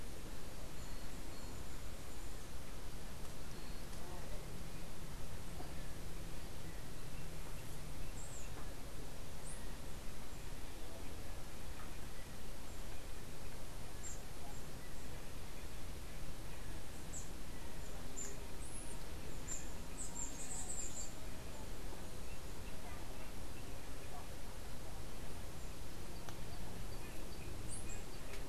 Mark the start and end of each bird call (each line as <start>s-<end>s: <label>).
16.8s-21.4s: Scrub Tanager (Stilpnia vitriolina)